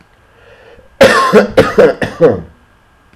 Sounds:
Cough